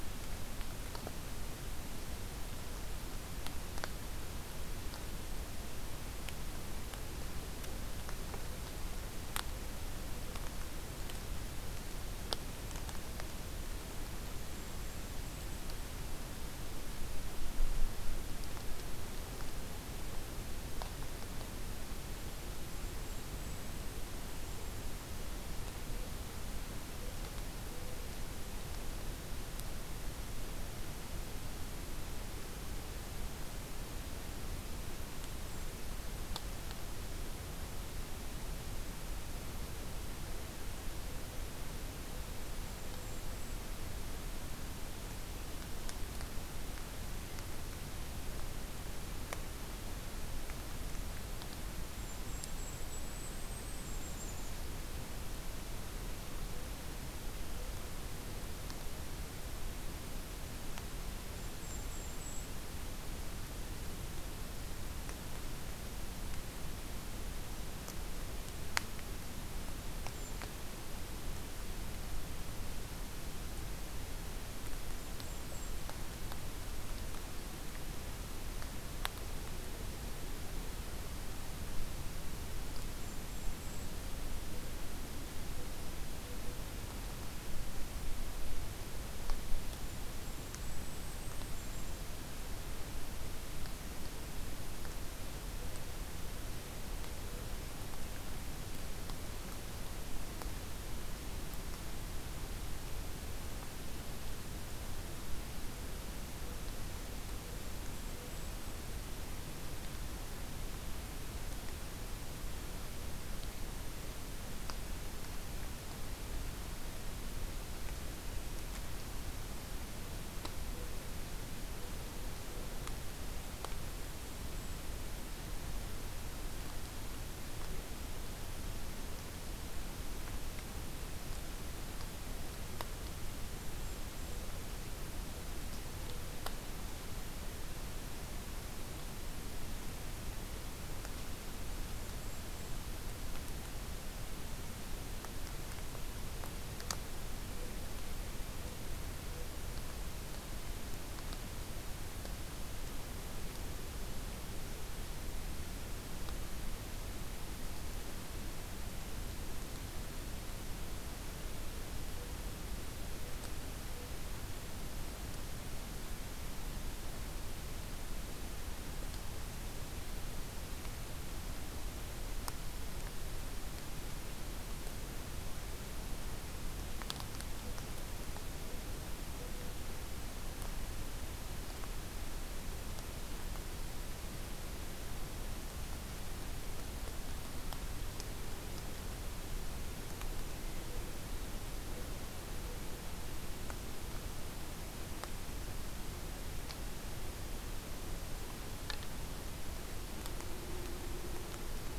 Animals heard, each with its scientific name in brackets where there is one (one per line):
Golden-crowned Kinglet (Regulus satrapa)